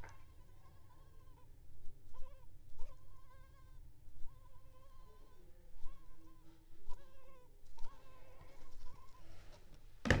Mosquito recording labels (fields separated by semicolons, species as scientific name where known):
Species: Culex pipiens complex; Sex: female; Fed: unfed; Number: one; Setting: cup